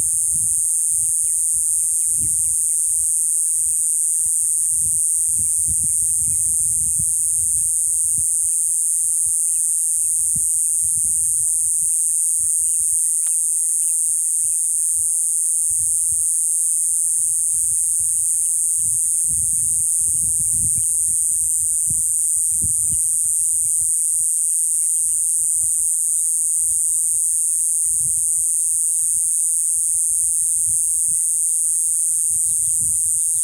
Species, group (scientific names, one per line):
Diceroprocta eugraphica
Cicadidae